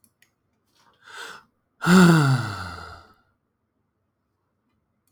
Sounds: Sigh